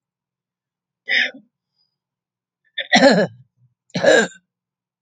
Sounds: Throat clearing